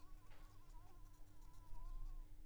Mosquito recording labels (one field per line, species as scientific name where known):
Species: Anopheles squamosus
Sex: female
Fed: unfed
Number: one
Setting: cup